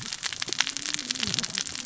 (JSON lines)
{"label": "biophony, cascading saw", "recorder": "SoundTrap 600 or HydroMoth"}